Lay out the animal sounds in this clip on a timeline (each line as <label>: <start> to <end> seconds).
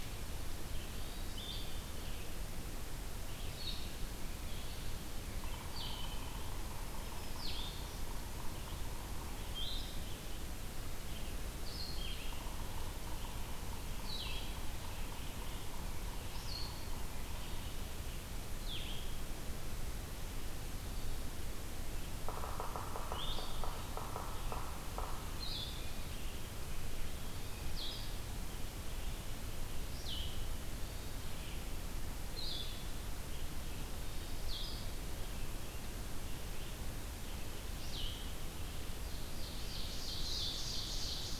Hermit Thrush (Catharus guttatus): 0.8 to 1.5 seconds
Blue-headed Vireo (Vireo solitarius): 1.2 to 41.4 seconds
Yellow-bellied Sapsucker (Sphyrapicus varius): 5.5 to 9.6 seconds
Black-throated Green Warbler (Setophaga virens): 6.8 to 8.2 seconds
Yellow-bellied Sapsucker (Sphyrapicus varius): 12.2 to 17.8 seconds
Yellow-bellied Sapsucker (Sphyrapicus varius): 22.2 to 25.1 seconds
Hermit Thrush (Catharus guttatus): 30.7 to 31.3 seconds
Ovenbird (Seiurus aurocapilla): 38.9 to 41.4 seconds